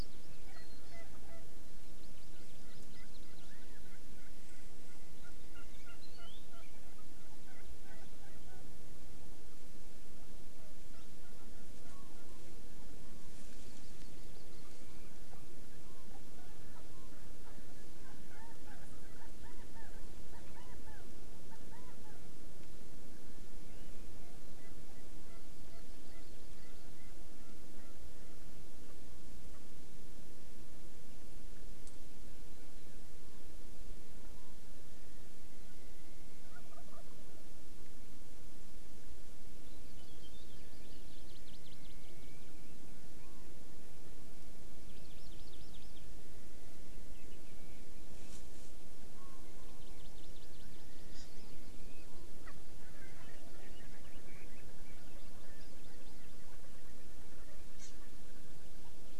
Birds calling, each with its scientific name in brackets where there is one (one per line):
Hawaii Amakihi (Chlorodrepanis virens)
Erckel's Francolin (Pternistis erckelii)
Chinese Hwamei (Garrulax canorus)